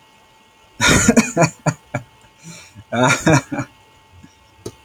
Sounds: Laughter